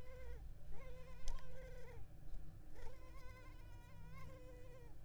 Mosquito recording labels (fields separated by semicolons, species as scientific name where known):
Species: Culex pipiens complex; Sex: female; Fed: unfed; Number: one; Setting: cup